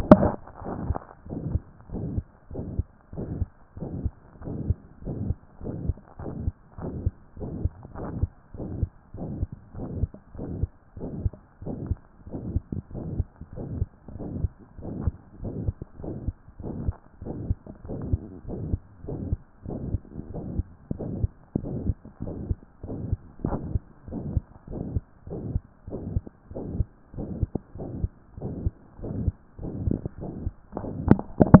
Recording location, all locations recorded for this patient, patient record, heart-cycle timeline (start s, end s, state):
tricuspid valve (TV)
aortic valve (AV)+pulmonary valve (PV)+tricuspid valve (TV)+mitral valve (MV)
#Age: Child
#Sex: Male
#Height: 126.0 cm
#Weight: 30.7 kg
#Pregnancy status: False
#Murmur: Present
#Murmur locations: aortic valve (AV)+mitral valve (MV)+pulmonary valve (PV)+tricuspid valve (TV)
#Most audible location: pulmonary valve (PV)
#Systolic murmur timing: Holosystolic
#Systolic murmur shape: Plateau
#Systolic murmur grading: III/VI or higher
#Systolic murmur pitch: Medium
#Systolic murmur quality: Harsh
#Diastolic murmur timing: nan
#Diastolic murmur shape: nan
#Diastolic murmur grading: nan
#Diastolic murmur pitch: nan
#Diastolic murmur quality: nan
#Outcome: Abnormal
#Campaign: 2014 screening campaign
0.00	0.68	unannotated
0.68	0.76	S1
0.76	0.86	systole
0.86	0.98	S2
0.98	1.32	diastole
1.32	1.40	S1
1.40	1.50	systole
1.50	1.60	S2
1.60	1.94	diastole
1.94	2.06	S1
2.06	2.14	systole
2.14	2.24	S2
2.24	2.52	diastole
2.52	2.66	S1
2.66	2.76	systole
2.76	2.86	S2
2.86	3.14	diastole
3.14	3.28	S1
3.28	3.38	systole
3.38	3.48	S2
3.48	3.80	diastole
3.80	3.90	S1
3.90	4.02	systole
4.02	4.12	S2
4.12	4.44	diastole
4.44	4.58	S1
4.58	4.66	systole
4.66	4.76	S2
4.76	5.06	diastole
5.06	5.16	S1
5.16	5.26	systole
5.26	5.36	S2
5.36	5.64	diastole
5.64	5.74	S1
5.74	5.84	systole
5.84	5.96	S2
5.96	6.22	diastole
6.22	6.32	S1
6.32	6.42	systole
6.42	6.52	S2
6.52	6.82	diastole
6.82	6.92	S1
6.92	7.04	systole
7.04	7.12	S2
7.12	7.40	diastole
7.40	7.52	S1
7.52	7.62	systole
7.62	7.72	S2
7.72	7.98	diastole
7.98	8.10	S1
8.10	8.18	systole
8.18	8.28	S2
8.28	8.60	diastole
8.60	8.70	S1
8.70	8.80	systole
8.80	8.90	S2
8.90	9.18	diastole
9.18	9.30	S1
9.30	9.40	systole
9.40	9.48	S2
9.48	9.78	diastole
9.78	9.88	S1
9.88	9.98	systole
9.98	10.08	S2
10.08	10.40	diastole
10.40	10.48	S1
10.48	10.60	systole
10.60	10.70	S2
10.70	10.98	diastole
10.98	11.10	S1
11.10	11.22	systole
11.22	11.32	S2
11.32	11.64	diastole
11.64	11.76	S1
11.76	11.88	systole
11.88	11.98	S2
11.98	12.30	diastole
12.30	12.42	S1
12.42	12.55	systole
12.55	12.66	S2
12.66	12.96	diastole
12.96	13.08	S1
13.08	13.16	systole
13.16	13.26	S2
13.26	13.58	diastole
13.58	13.68	S1
13.68	13.76	systole
13.76	13.86	S2
13.86	14.20	diastole
14.20	14.30	S1
14.30	14.40	systole
14.40	14.50	S2
14.50	14.84	diastole
14.84	14.94	S1
14.94	15.04	systole
15.04	15.14	S2
15.14	15.44	diastole
15.44	15.54	S1
15.54	15.64	systole
15.64	15.74	S2
15.74	16.02	diastole
16.02	16.14	S1
16.14	16.26	systole
16.26	16.34	S2
16.34	16.62	diastole
16.62	16.74	S1
16.74	16.84	systole
16.84	16.94	S2
16.94	17.24	diastole
17.24	17.36	S1
17.36	17.46	systole
17.46	17.56	S2
17.56	17.86	diastole
17.86	18.00	S1
18.00	18.10	systole
18.10	18.20	S2
18.20	18.50	diastole
18.50	18.60	S1
18.60	18.70	systole
18.70	18.80	S2
18.80	19.08	diastole
19.08	19.20	S1
19.20	19.30	systole
19.30	19.38	S2
19.38	19.66	diastole
19.66	19.78	S1
19.78	19.90	systole
19.90	20.00	S2
20.00	20.32	diastole
20.32	20.44	S1
20.44	20.56	systole
20.56	20.64	S2
20.64	20.96	diastole
20.96	21.10	S1
21.10	21.20	systole
21.20	21.28	S2
21.28	21.60	diastole
21.60	21.76	S1
21.76	21.84	systole
21.84	21.94	S2
21.94	22.24	diastole
22.24	22.34	S1
22.34	22.48	systole
22.48	22.58	S2
22.58	22.86	diastole
22.86	22.98	S1
22.98	23.08	systole
23.08	23.16	S2
23.16	23.46	diastole
23.46	23.58	S1
23.58	23.72	systole
23.72	23.82	S2
23.82	24.10	diastole
24.10	24.24	S1
24.24	24.34	systole
24.34	24.44	S2
24.44	24.72	diastole
24.72	24.84	S1
24.84	24.92	systole
24.92	25.02	S2
25.02	25.30	diastole
25.30	25.40	S1
25.40	25.52	systole
25.52	25.62	S2
25.62	25.90	diastole
25.90	26.00	S1
26.00	26.12	systole
26.12	26.24	S2
26.24	26.54	diastole
26.54	26.64	S1
26.64	26.76	systole
26.76	26.86	S2
26.86	27.18	diastole
27.18	27.28	S1
27.28	27.40	systole
27.40	27.50	S2
27.50	27.78	diastole
27.78	27.90	S1
27.90	28.00	systole
28.00	28.10	S2
28.10	28.42	diastole
28.42	28.54	S1
28.54	28.64	systole
28.64	28.74	S2
28.74	29.02	diastole
29.02	29.14	S1
29.14	29.22	systole
29.22	29.32	S2
29.32	29.61	diastole
29.61	31.60	unannotated